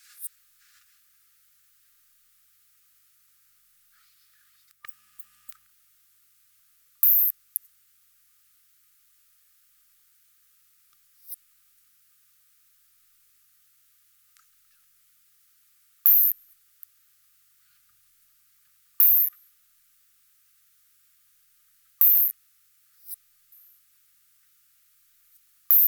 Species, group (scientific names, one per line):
Isophya rhodopensis
Orthoptera